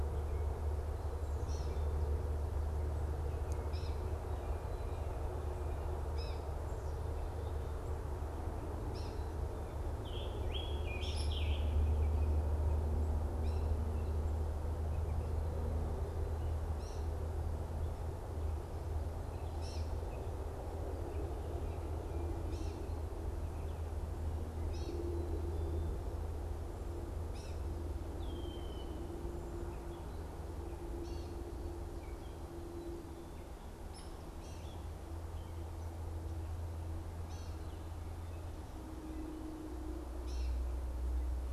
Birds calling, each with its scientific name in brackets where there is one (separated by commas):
Scarlet Tanager (Piranga olivacea), Red-winged Blackbird (Agelaius phoeniceus), Gray Catbird (Dumetella carolinensis)